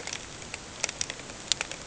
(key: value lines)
label: ambient
recorder: HydroMoth